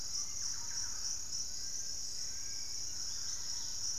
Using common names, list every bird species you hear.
Hauxwell's Thrush, Thrush-like Wren, Fasciated Antshrike, unidentified bird, Dusky-capped Greenlet